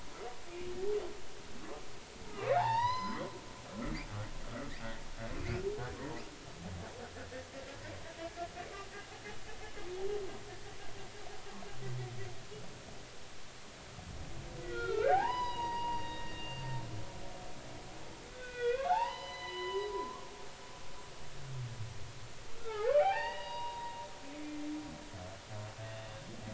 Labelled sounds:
2.3	3.3	humpback whale, 0.80 to 6.1 kHz
6.0	6.2	humpback whale, 0.80 to 1.1 kHz
14.6	16.8	humpback whale, 0.80 to 5.1 kHz
18.3	20.3	humpback whale, 0.80 to 4.1 kHz
22.6	24.7	humpback whale, 0.80 to 4.9 kHz

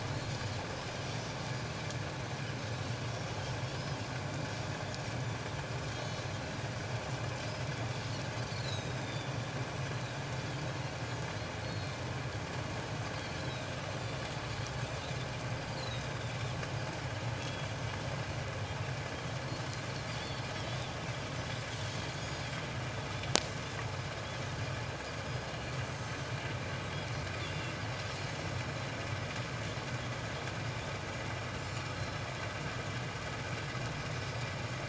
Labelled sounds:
1.0	1.3	Pacific white-sided dolphin, 5.5 to 5.7 kHz
6.0	6.3	Pacific white-sided dolphin, 3.8 to 4.0 kHz
8.4	9.3	Pacific white-sided dolphin, 3.3 to 5.3 kHz
11.6	12.0	Pacific white-sided dolphin, 4.1 to 4.4 kHz
13.1	13.7	Pacific white-sided dolphin, 3.5 to 4.5 kHz
15.6	16.4	Pacific white-sided dolphin, 3.4 to 4.9 kHz
17.4	17.7	Pacific white-sided dolphin, 3.2 to 3.4 kHz
20.1	20.4	Pacific white-sided dolphin, 3.2 to 3.6 kHz
27.4	27.7	Pacific white-sided dolphin, 2.6 to 3.6 kHz
31.6	31.9	Pacific white-sided dolphin, 7.0 to 7.3 kHz

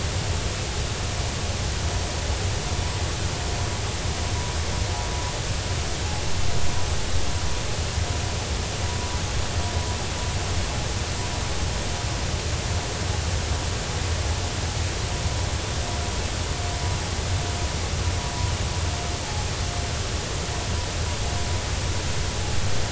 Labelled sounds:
19.2	19.5	vessel noise, 0.80 to 0.93 kHz

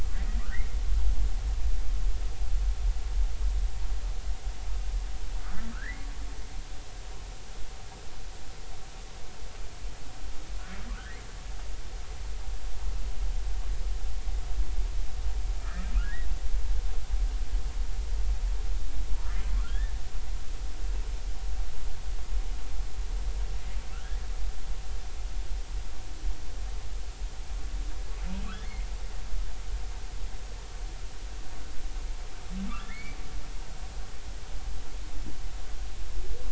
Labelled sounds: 5.4	6.1	humpback whale, 1.1 to 2.2 kHz
10.9	11.1	humpback whale, 1.0 to 1.6 kHz
15.6	15.9	humpback whale, 1.2 to 1.9 kHz
19.6	19.9	humpback whale, 1.3 to 1.9 kHz
23.9	24.2	humpback whale, 1.3 to 1.8 kHz
28.4	28.9	humpback whale, 1.1 to 2.3 kHz
32.7	33.2	humpback whale, 1.1 to 2.4 kHz

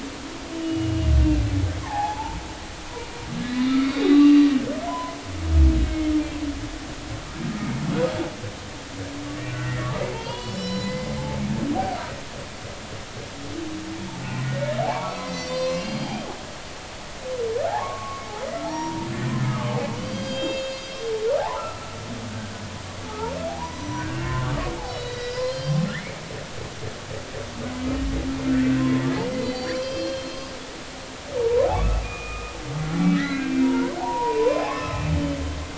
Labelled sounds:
0.0	1.2	humpback whale, 2.7 to 3.0 kHz
1.8	2.4	humpback whale, 0.80 to 1.9 kHz
3.4	4.4	humpback whale, 1.1 to 4.1 kHz
4.9	5.2	humpback whale, 0.90 to 1.1 kHz
9.5	11.1	humpback whale, 0.80 to 5.6 kHz
14.9	16.3	humpback whale, 0.83 to 7.2 kHz
17.6	19.1	humpback whale, 0.80 to 5.7 kHz
19.5	20.9	humpback whale, 1.0 to 7.0 kHz
21.4	21.8	humpback whale, 0.80 to 1.4 kHz
23.6	24.5	humpback whale, 0.90 to 6.0 kHz
24.9	26.2	humpback whale, 1.6 to 5.8 kHz
28.5	31.7	humpback whale, 0.83 to 5.3 kHz
32.0	32.5	humpback whale, 1.1 to 2.6 kHz
33.1	35.0	humpback whale, 0.80 to 5.2 kHz

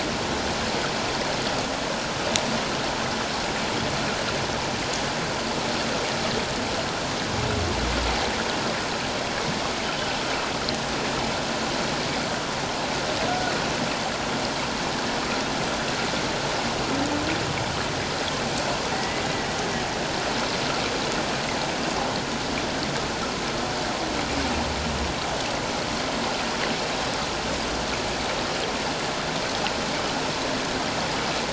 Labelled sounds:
13.3	13.5	humpback whale, 1.4 to 1.5 kHz
18.9	19.2	humpback whale, 1.9 to 2.1 kHz

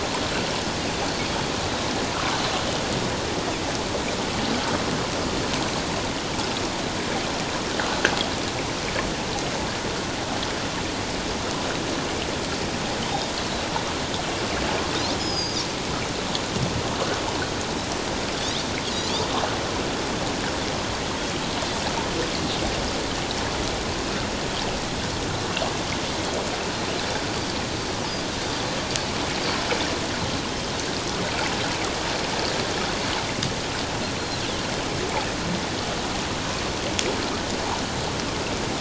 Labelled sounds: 15.2	15.6	Pacific white-sided dolphin, 4.4 to 7.0 kHz

